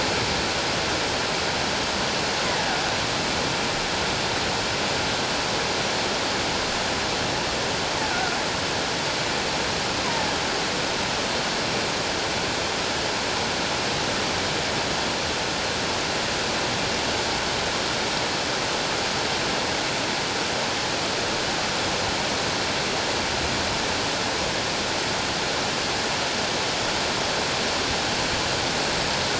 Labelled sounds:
8.1	8.4	killer whale, offshore, 1.3 to 1.6 kHz

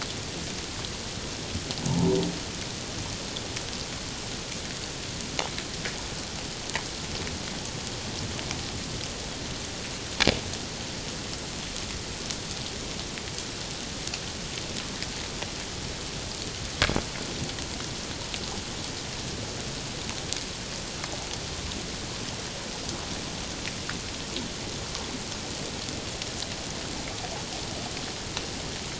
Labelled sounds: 1.9	2.2	humpback whale, 0.81 to 1.0 kHz

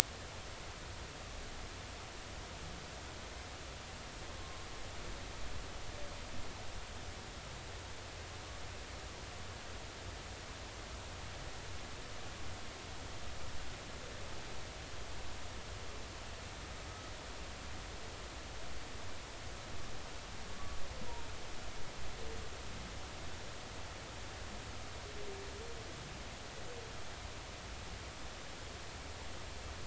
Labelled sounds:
4.4	4.7	humpback whale, 1.0 to 1.1 kHz

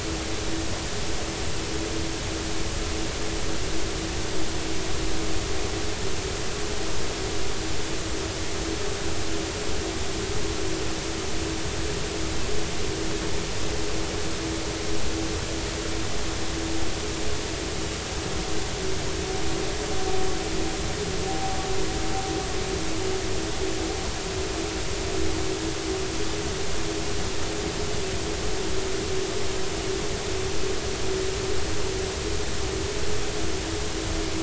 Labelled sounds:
21.3	21.6	vessel noise, 0.80 to 0.86 kHz

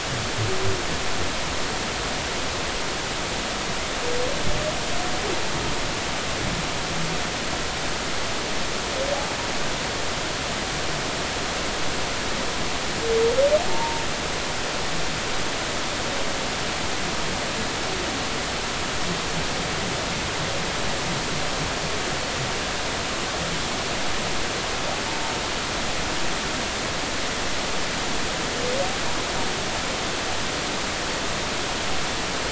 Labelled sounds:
13.7	14.0	humpback whale, 0.86 to 1.1 kHz

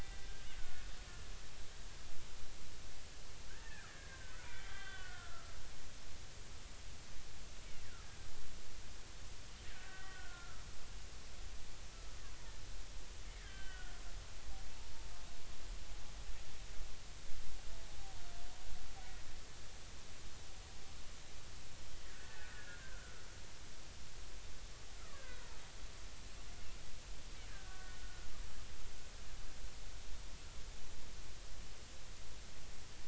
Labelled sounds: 0.6	0.8	killer whale, Bigg's (transient), 1.4 to 1.5 kHz
3.5	5.6	killer whale, Bigg's (transient), 1.1 to 3.6 kHz
9.6	10.6	killer whale, Bigg's (transient), 1.2 to 2.0 kHz
13.4	14.0	killer whale, Bigg's (transient), 1.4 to 3.4 kHz
22.1	23.0	killer whale, Bigg's (transient), 1.4 to 2.0 kHz
25.1	25.6	killer whale, Bigg's (transient), 1.3 to 1.7 kHz
27.5	28.3	killer whale, Bigg's (transient), 1.4 to 1.7 kHz

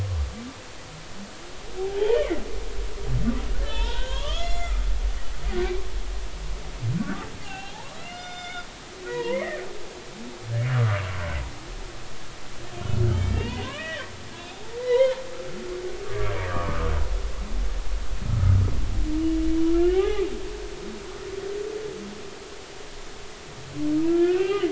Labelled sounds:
2.1	2.4	humpback whale, 1.9 to 2.5 kHz
3.6	5.6	humpback whale, 0.86 to 7.0 kHz
7.4	8.7	humpback whale, 0.80 to 7.3 kHz
9.1	9.6	humpback whale, 0.86 to 2.3 kHz
13.2	15.2	humpback whale, 0.86 to 4.1 kHz
16.0	16.9	humpback whale, 1.0 to 1.3 kHz
18.2	18.5	humpback whale, 1.2 to 1.4 kHz
19.7	20.3	humpback whale, 0.80 to 3.1 kHz
24.0	24.6	humpback whale, 1.3 to 3.1 kHz

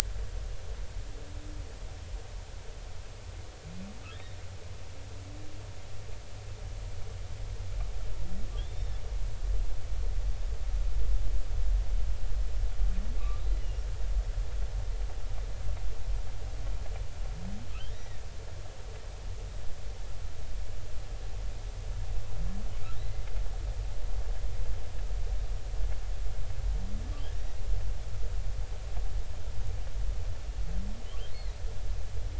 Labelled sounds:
4.1	4.4	humpback whale, 3.1 to 3.8 kHz
8.5	8.9	humpback whale, 3.0 to 3.7 kHz
13.2	13.8	humpback whale, 1.1 to 3.0 kHz
17.9	18.2	humpback whale, 1.8 to 2.0 kHz
24.0	24.3	humpback whale, 2.0 to 2.1 kHz

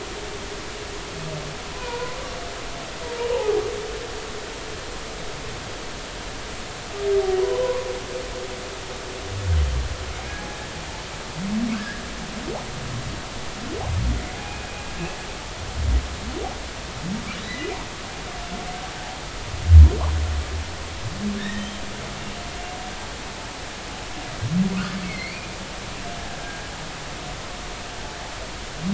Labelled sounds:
1.7	2.2	humpback whale, 0.90 to 1.5 kHz
3.3	3.6	humpback whale, 0.80 to 1.0 kHz
7.4	7.9	humpback whale, 0.93 to 1.2 kHz
11.7	12.0	humpback whale, 1.5 to 1.9 kHz
14.3	14.7	humpback whale, 0.80 to 2.5 kHz
17.4	17.6	humpback whale, 3.7 to 4.0 kHz
21.4	21.8	humpback whale, 1.6 to 3.3 kHz
25.0	25.5	humpback whale, 2.0 to 2.5 kHz
26.3	26.7	humpback whale, 1.6 to 1.7 kHz

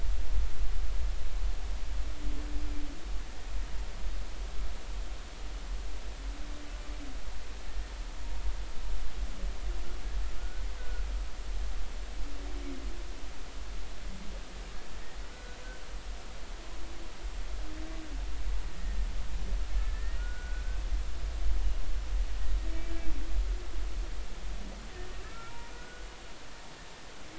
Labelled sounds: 10.4	11.0	humpback whale, 1.4 to 1.6 kHz
15.3	15.6	humpback whale, 1.4 to 1.5 kHz
18.8	19.1	humpback whale, 1.8 to 2.0 kHz
19.8	20.6	humpback whale, 1.4 to 1.9 kHz
22.7	22.9	humpback whale, 2.2 to 2.4 kHz
25.2	26.1	humpback whale, 0.90 to 2.4 kHz

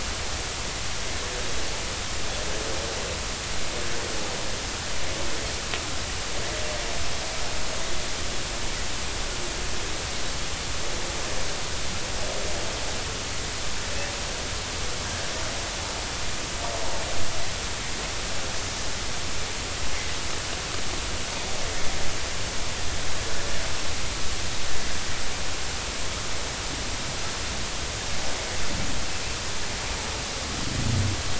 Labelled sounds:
19.9	20.2	Pacific white-sided dolphin, 2.0 to 2.3 kHz

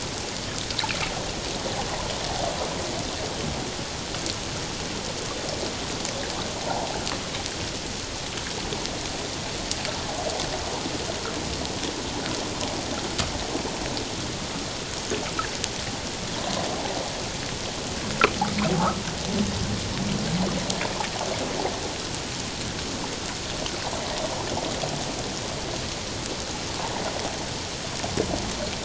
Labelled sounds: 6.6	6.9	water noise, 0.78 to 1.0 kHz
16.4	16.6	water noise, 0.88 to 1.1 kHz

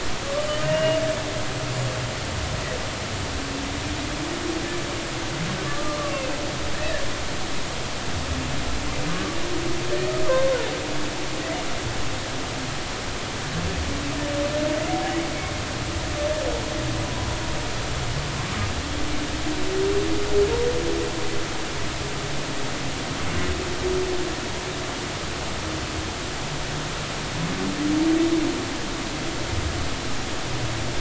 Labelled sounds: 0.6	1.0	humpback whale, 1.8 to 2.9 kHz
5.7	6.4	humpback whale, 1.1 to 2.8 kHz
6.7	7.1	humpback whale, 1.6 to 2.0 kHz
9.1	9.4	humpback whale, 1.1 to 1.2 kHz

